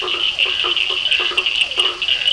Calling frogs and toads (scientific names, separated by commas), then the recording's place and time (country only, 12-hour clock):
Boana faber, Physalaemus cuvieri, Scinax perereca, Sphaenorhynchus surdus
Brazil, 8:15pm